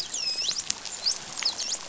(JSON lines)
{"label": "biophony, dolphin", "recorder": "SoundTrap 500"}
{"label": "biophony", "recorder": "SoundTrap 500"}